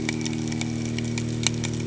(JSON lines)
{"label": "anthrophony, boat engine", "recorder": "HydroMoth"}